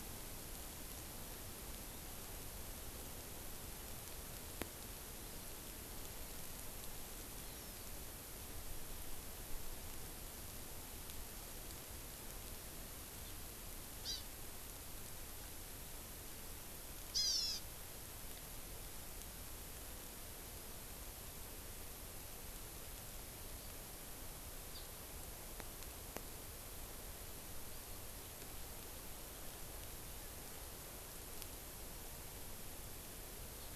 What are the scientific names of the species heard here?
Chlorodrepanis virens